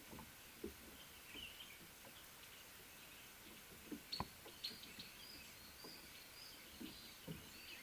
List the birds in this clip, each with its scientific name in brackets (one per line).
Little Bee-eater (Merops pusillus)